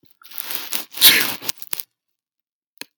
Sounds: Sneeze